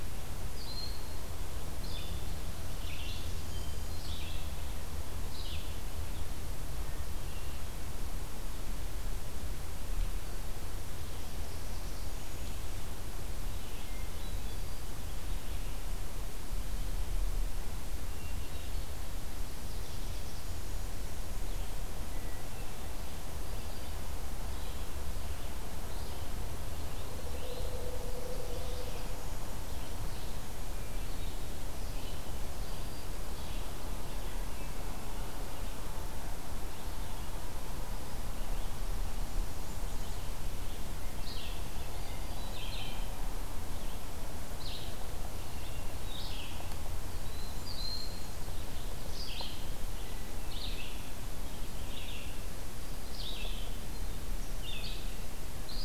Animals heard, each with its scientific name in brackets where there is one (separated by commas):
Hermit Thrush (Catharus guttatus), Blackburnian Warbler (Setophaga fusca), Black-throated Green Warbler (Setophaga virens), Black-throated Blue Warbler (Setophaga caerulescens), Broad-winged Hawk (Buteo platypterus), Red-eyed Vireo (Vireo olivaceus)